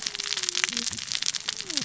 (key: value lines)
label: biophony, cascading saw
recorder: SoundTrap 600 or HydroMoth